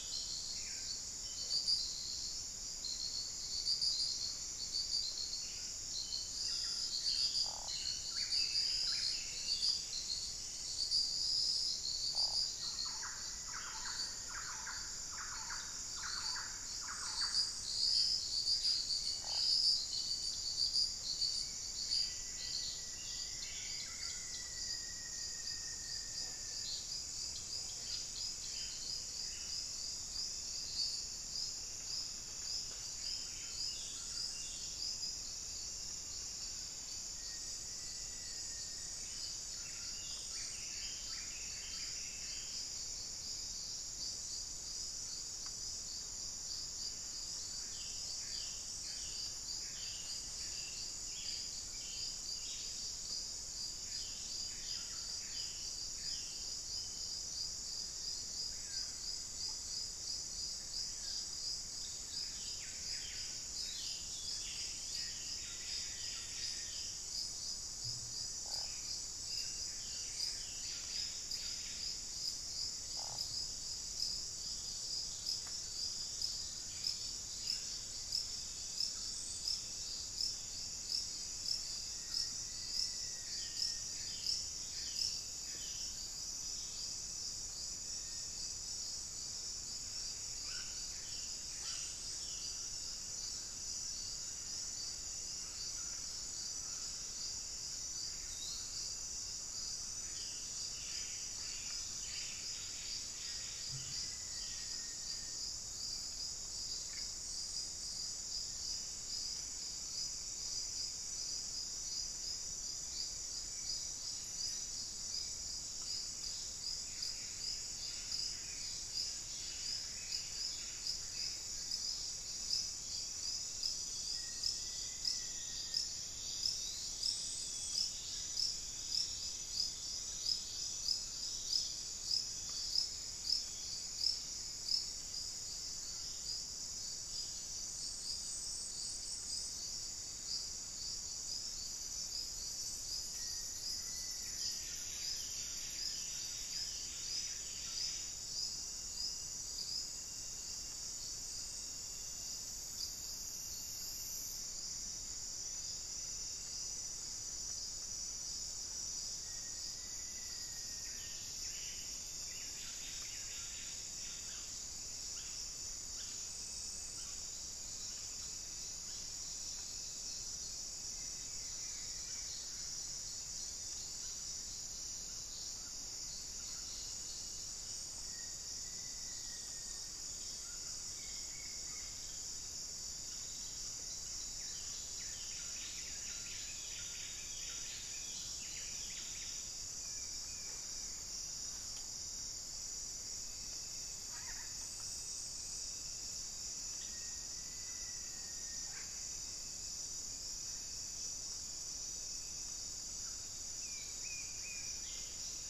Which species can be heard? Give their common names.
Buff-breasted Wren, Black-faced Antthrush, Thrush-like Wren, Rufous-fronted Antthrush, unidentified bird, Forest Elaenia, Red-bellied Macaw